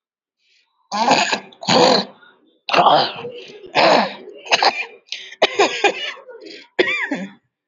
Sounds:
Throat clearing